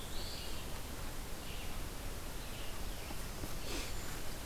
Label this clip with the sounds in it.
Black-throated Blue Warbler, Red-eyed Vireo